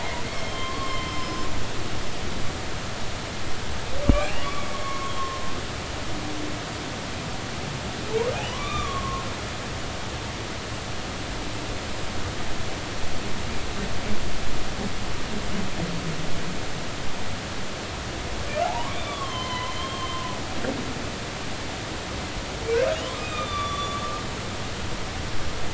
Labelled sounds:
0.0	1.5	humpback whale, 0.90 to 5.5 kHz
4.1	5.4	humpback whale, 0.96 to 3.3 kHz
8.5	9.2	humpback whale, 0.93 to 3.7 kHz
18.6	20.4	humpback whale, 0.80 to 4.2 kHz
23.2	24.2	humpback whale, 1.1 to 5.9 kHz

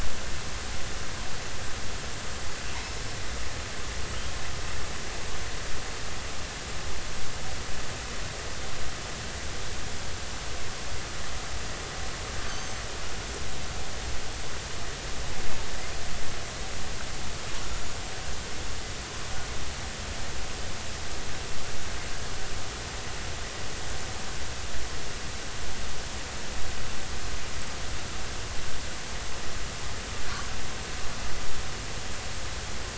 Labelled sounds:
12.5	12.8	killer whale, offshore, 6.0 to 6.4 kHz

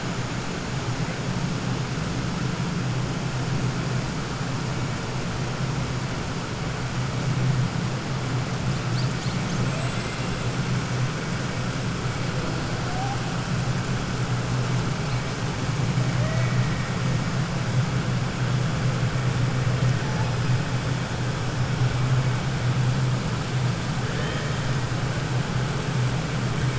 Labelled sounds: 9.6	10.2	killer whale, 2.1 to 4.1 kHz

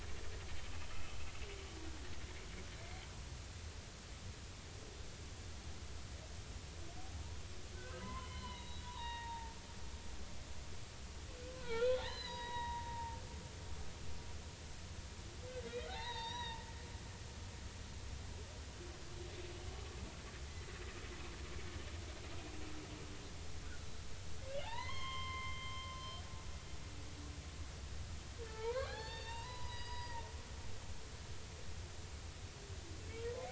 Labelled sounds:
0.9	1.2	humpback whale, 1.2 to 1.4 kHz
7.7	9.5	humpback whale, 0.80 to 4.4 kHz
11.5	13.2	humpback whale, 0.83 to 4.9 kHz
15.7	16.6	humpback whale, 0.80 to 5.9 kHz
24.5	26.0	humpback whale, 0.80 to 5.4 kHz
28.4	30.3	humpback whale, 0.80 to 5.0 kHz

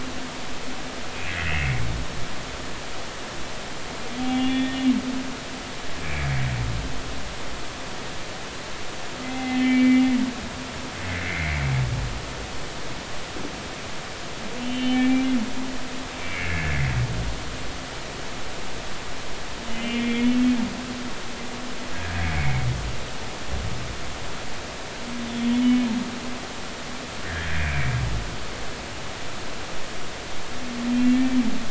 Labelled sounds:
1.3	1.9	humpback whale, 1.8 to 2.9 kHz
4.2	4.8	humpback whale, 0.80 to 3.5 kHz
6.0	6.3	humpback whale, 2.1 to 2.4 kHz
9.2	10.0	humpback whale, 0.80 to 2.4 kHz
11.2	11.6	humpback whale, 2.0 to 2.4 kHz
14.6	15.3	humpback whale, 2.2 to 3.2 kHz
16.2	17.0	humpback whale, 1.6 to 2.8 kHz
19.7	20.4	humpback whale, 2.1 to 3.4 kHz
21.9	22.5	humpback whale, 1.6 to 2.3 kHz
25.6	25.9	humpback whale, 2.1 to 3.0 kHz
27.6	28.0	humpback whale, 2.2 to 2.5 kHz
31.0	31.4	humpback whale, 2.2 to 2.4 kHz

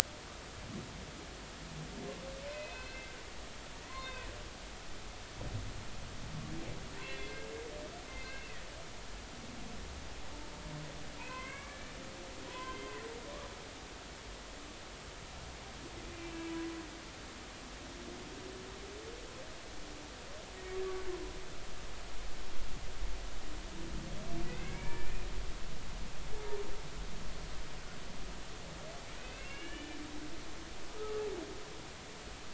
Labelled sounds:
2.5	3.1	humpback whale, 2.0 to 4.2 kHz
3.8	4.3	humpback whale, 0.96 to 4.3 kHz
7.0	8.6	humpback whale, 2.0 to 2.8 kHz
11.2	11.9	humpback whale, 0.93 to 2.7 kHz
12.5	13.0	humpback whale, 0.93 to 3.2 kHz
16.2	16.5	humpback whale, 2.6 to 2.7 kHz
24.4	25.3	humpback whale, 1.7 to 2.5 kHz
29.2	30.0	humpback whale, 1.6 to 3.0 kHz
31.0	31.2	humpback whale, 1.2 to 1.3 kHz

